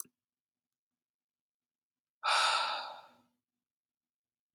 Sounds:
Sigh